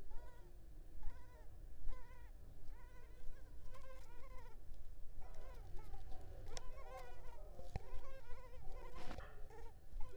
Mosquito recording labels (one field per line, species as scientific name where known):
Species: Culex pipiens complex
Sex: female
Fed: unfed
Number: one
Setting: cup